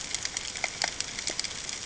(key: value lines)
label: ambient
recorder: HydroMoth